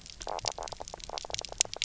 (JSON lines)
{"label": "biophony, knock croak", "recorder": "SoundTrap 300"}
{"label": "biophony", "recorder": "SoundTrap 300"}